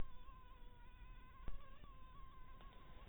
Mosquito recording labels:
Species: mosquito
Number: one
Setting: cup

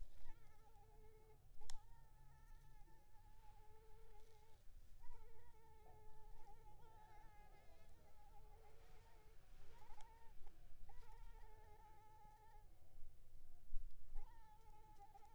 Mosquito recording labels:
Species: Anopheles arabiensis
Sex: female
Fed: unfed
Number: one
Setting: cup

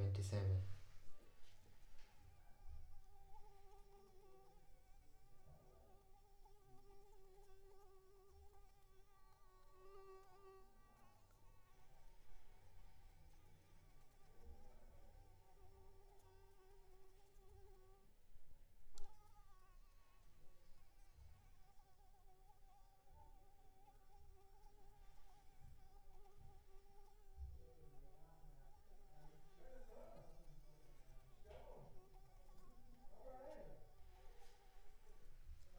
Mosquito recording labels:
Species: Anopheles arabiensis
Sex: female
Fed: unfed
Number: one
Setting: cup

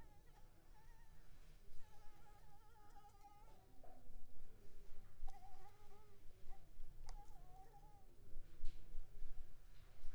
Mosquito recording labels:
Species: Anopheles arabiensis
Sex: female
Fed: blood-fed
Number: one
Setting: cup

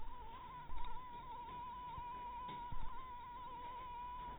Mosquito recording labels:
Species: mosquito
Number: one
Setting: cup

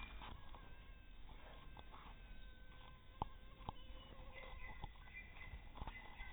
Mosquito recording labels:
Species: mosquito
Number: one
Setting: cup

